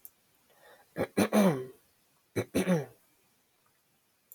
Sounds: Throat clearing